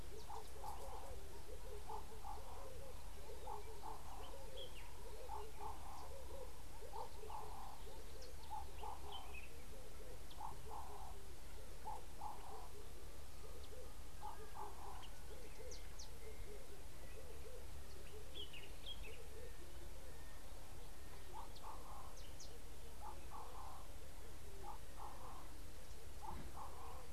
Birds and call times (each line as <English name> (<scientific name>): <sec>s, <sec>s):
Common Bulbul (Pycnonotus barbatus): 18.6s